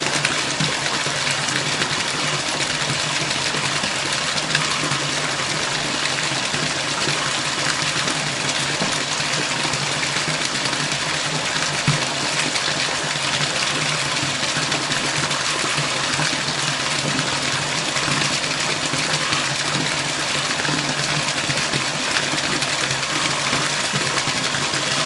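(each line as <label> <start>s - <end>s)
Water pouring steadily and loudly from a showerhead. 0.0s - 25.1s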